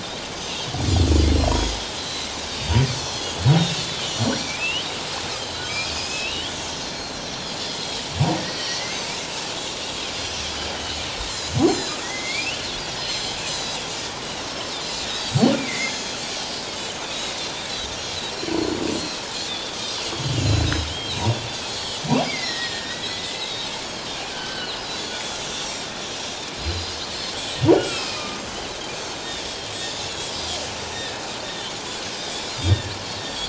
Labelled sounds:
1.4	3.3	Pacific white-sided dolphin, 3.1 to 5.2 kHz
4.0	4.5	Pacific white-sided dolphin, 5.6 to 5.8 kHz
4.4	4.9	humpback whale, 2.2 to 3.1 kHz
5.4	6.5	Pacific white-sided dolphin, 3.8 to 5.3 kHz
5.6	6.6	humpback whale, 1.2 to 3.6 kHz
6.9	7.2	Pacific white-sided dolphin, 3.9 to 4.3 kHz
7.6	12.3	Pacific white-sided dolphin, 2.9 to 7.5 kHz
8.4	9.0	humpback whale, 1.8 to 2.3 kHz
12.0	12.6	humpback whale, 1.8 to 3.2 kHz
13.0	13.8	Pacific white-sided dolphin, 3.8 to 6.3 kHz
14.5	15.1	Pacific white-sided dolphin, 3.8 to 5.6 kHz
15.5	16.0	humpback whale, 1.9 to 2.5 kHz
15.8	16.2	Pacific white-sided dolphin, 4.9 to 6.8 kHz
17.1	17.4	Pacific white-sided dolphin, 3.7 to 4.0 kHz
18.3	18.8	Pacific white-sided dolphin, 4.0 to 4.6 kHz
19.3	25.9	Pacific white-sided dolphin, 1.4 to 7.8 kHz
22.2	23.6	humpback whale, 1.7 to 2.4 kHz
26.6	27.7	Pacific white-sided dolphin, 3.9 to 7.9 kHz
27.7	28.4	humpback whale, 1.2 to 2.8 kHz
28.4	28.7	Pacific white-sided dolphin, 6.0 to 6.6 kHz
29.2	29.5	Pacific white-sided dolphin, 3.3 to 3.8 kHz
29.7	31.1	Pacific white-sided dolphin, 3.4 to 6.2 kHz
31.5	33.4	Pacific white-sided dolphin, 1.7 to 5.1 kHz

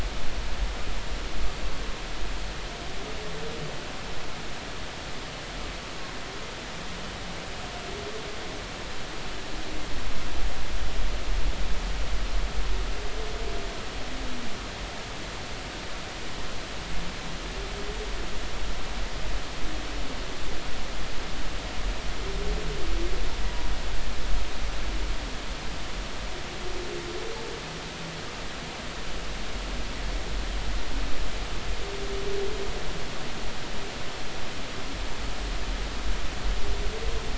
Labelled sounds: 23.4	23.7	humpback whale, 0.93 to 1.0 kHz

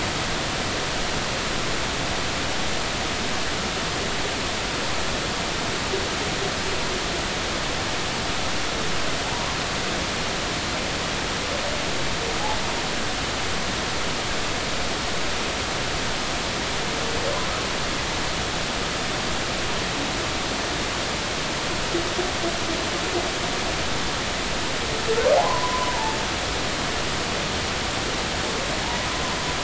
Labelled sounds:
9.2	9.6	humpback whale, 0.80 to 1.2 kHz
25.4	26.2	humpback whale, 0.80 to 1.1 kHz
28.8	29.1	humpback whale, 0.80 to 1.0 kHz

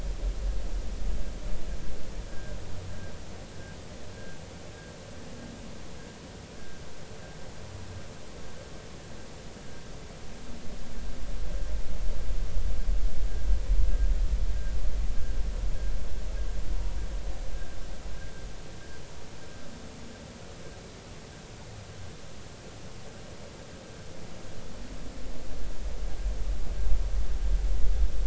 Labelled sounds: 2.3	2.6	vessel noise, 1.5 to 1.7 kHz

